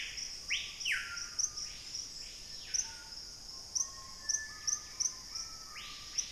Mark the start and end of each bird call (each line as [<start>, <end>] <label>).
[0.00, 6.31] Screaming Piha (Lipaugus vociferans)
[3.74, 5.74] Bright-rumped Attila (Attila spadiceus)